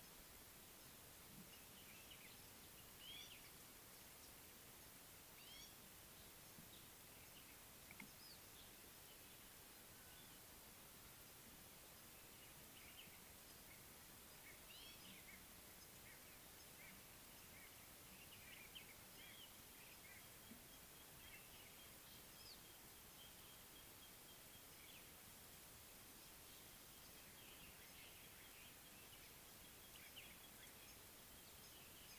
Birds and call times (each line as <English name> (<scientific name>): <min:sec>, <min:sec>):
Gray-backed Camaroptera (Camaroptera brevicaudata): 0:05.5, 0:14.9
White-bellied Go-away-bird (Corythaixoides leucogaster): 0:16.9
Common Bulbul (Pycnonotus barbatus): 0:18.8